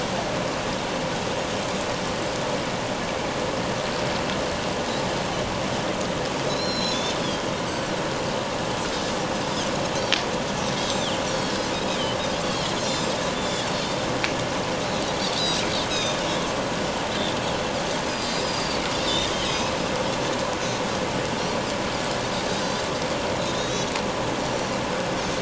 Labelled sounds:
6.5	7.2	Pacific white-sided dolphin, 3.4 to 7.0 kHz
7.7	7.9	Pacific white-sided dolphin, 4.5 to 7.8 kHz
10.9	11.2	Pacific white-sided dolphin, 2.8 to 3.8 kHz
12.4	13.7	Pacific white-sided dolphin, 2.9 to 7.4 kHz
15.4	16.2	Pacific white-sided dolphin, 2.4 to 5.2 kHz
18.1	19.7	Pacific white-sided dolphin, 2.4 to 6.6 kHz
23.5	23.9	Pacific white-sided dolphin, 3.5 to 6.9 kHz
24.4	24.7	Pacific white-sided dolphin, 4.3 to 5.9 kHz

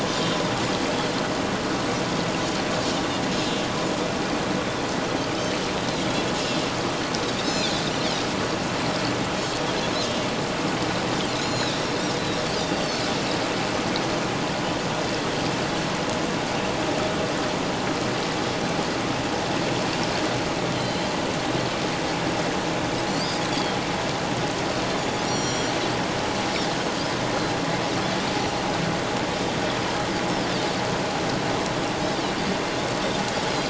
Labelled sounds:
6.0	6.3	Pacific white-sided dolphin, 3.2 to 3.4 kHz
7.4	7.8	Pacific white-sided dolphin, 4.0 to 7.0 kHz
11.3	11.8	Pacific white-sided dolphin, 3.5 to 7.1 kHz
12.7	13.0	Pacific white-sided dolphin, 4.3 to 4.7 kHz
20.7	21.1	Pacific white-sided dolphin, 3.0 to 4.2 kHz
23.1	23.8	Pacific white-sided dolphin, 3.0 to 5.1 kHz
25.2	25.8	Pacific white-sided dolphin, 3.0 to 7.2 kHz

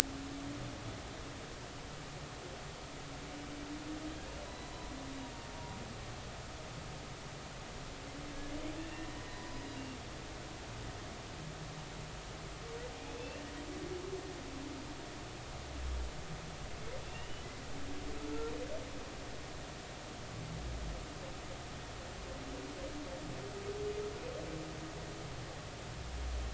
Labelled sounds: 4.4	4.7	humpback whale, 3.9 to 4.1 kHz
8.8	9.6	humpback whale, 0.96 to 2.9 kHz
13.1	13.4	humpback whale, 2.6 to 3.6 kHz
17.1	17.5	humpback whale, 2.7 to 3.0 kHz

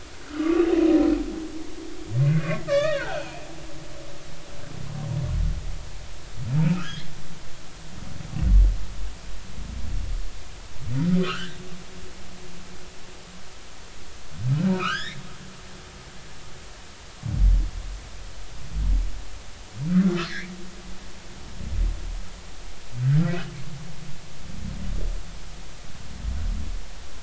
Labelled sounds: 0.3	0.7	humpback whale, 1.1 to 1.5 kHz
2.2	3.5	humpback whale, 0.80 to 3.9 kHz
6.6	7.1	humpback whale, 1.2 to 3.5 kHz
11.2	11.6	humpback whale, 1.1 to 1.9 kHz
14.7	15.2	humpback whale, 1.1 to 5.7 kHz
19.9	20.5	humpback whale, 1.1 to 2.4 kHz
23.2	23.5	humpback whale, 1.3 to 1.7 kHz

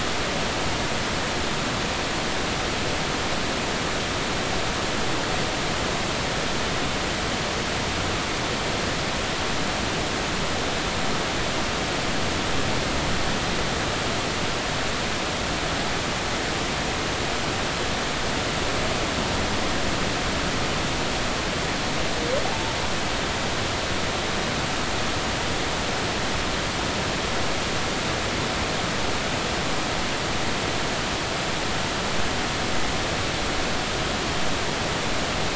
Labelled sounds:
22.4	22.8	humpback whale, 0.80 to 0.99 kHz

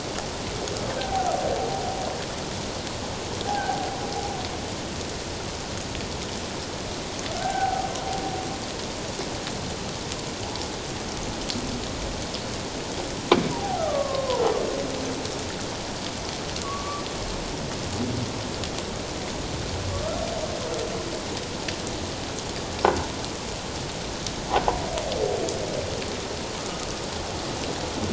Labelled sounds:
7.4	7.9	humpback whale, 0.78 to 1.6 kHz
13.6	14.4	humpback whale, 0.78 to 1.4 kHz
16.6	17.0	humpback whale, 1.0 to 1.2 kHz

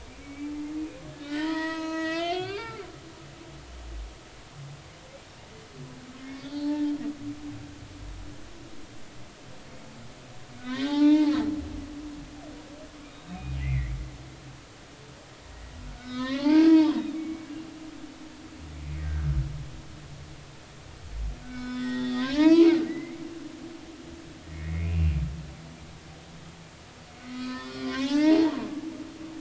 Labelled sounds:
0.2	2.8	humpback whale, 0.86 to 8.0 kHz
6.2	6.9	humpback whale, 0.83 to 4.7 kHz
10.6	11.3	humpback whale, 0.80 to 4.8 kHz
13.3	14.0	humpback whale, 1.8 to 2.7 kHz
15.9	17.5	humpback whale, 0.83 to 4.3 kHz
19.0	19.3	humpback whale, 1.4 to 1.7 kHz
21.4	23.2	humpback whale, 0.86 to 5.3 kHz
24.5	25.2	humpback whale, 1.8 to 2.8 kHz
27.2	28.8	humpback whale, 0.80 to 5.9 kHz

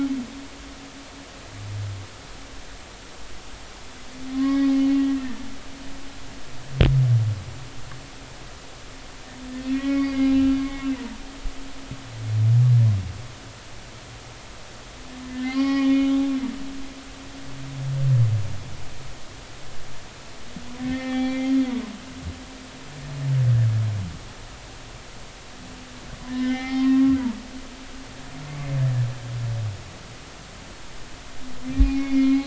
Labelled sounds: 4.3	4.7	humpback whale, 1.0 to 5.0 kHz
9.7	10.9	humpback whale, 1.1 to 2.7 kHz
15.3	16.1	humpback whale, 0.80 to 5.5 kHz
20.8	21.5	humpback whale, 0.80 to 2.7 kHz
26.3	27.2	humpback whale, 0.80 to 3.7 kHz
31.7	32.4	humpback whale, 0.80 to 2.6 kHz

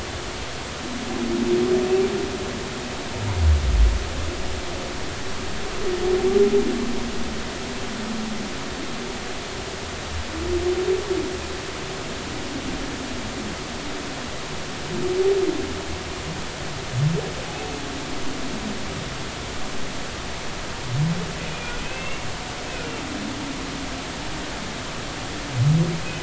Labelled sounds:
21.8	22.3	humpback whale, 2.1 to 2.8 kHz

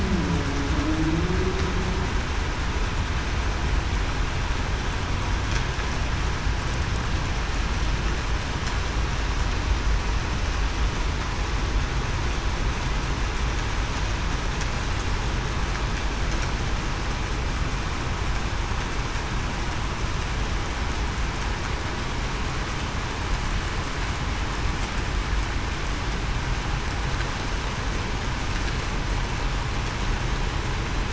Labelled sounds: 0.0	0.3	humpback whale, 0.28 to 0.40 kHz
0.7	1.2	humpback whale, 0.28 to 0.35 kHz

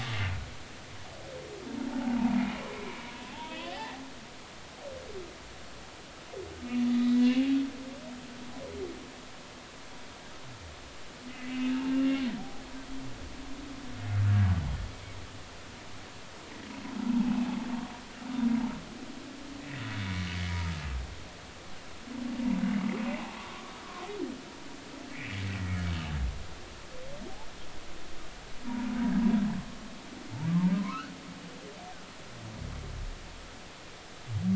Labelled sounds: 1.9	2.2	humpback whale, 0.80 to 0.96 kHz
3.3	4.0	humpback whale, 0.80 to 3.6 kHz
6.9	7.5	humpback whale, 1.9 to 4.0 kHz
11.3	11.6	humpback whale, 2.0 to 2.1 kHz
19.9	20.2	humpback whale, 2.1 to 2.3 kHz
23.1	24.1	humpback whale, 0.80 to 1.3 kHz
25.1	25.9	humpback whale, 1.6 to 2.5 kHz
30.8	31.1	humpback whale, 0.96 to 1.6 kHz

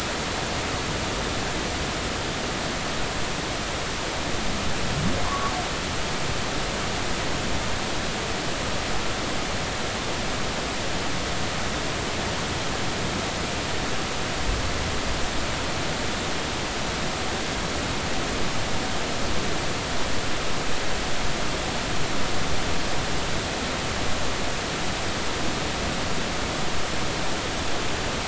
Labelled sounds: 5.2	5.5	humpback whale, 0.99 to 1.2 kHz

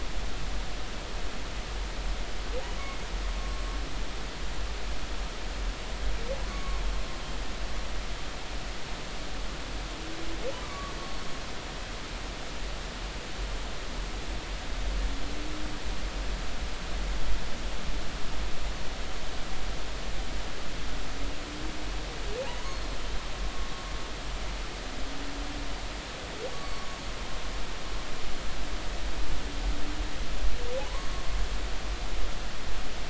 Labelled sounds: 2.8	3.6	humpback whale, 1.1 to 2.3 kHz
6.5	6.8	humpback whale, 1.0 to 1.2 kHz
10.6	11.0	humpback whale, 1.1 to 1.2 kHz
22.6	23.0	humpback whale, 4.2 to 4.4 kHz
26.5	26.9	humpback whale, 0.99 to 1.2 kHz

